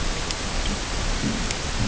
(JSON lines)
{"label": "ambient", "recorder": "HydroMoth"}